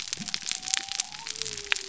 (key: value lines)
label: biophony
recorder: SoundTrap 300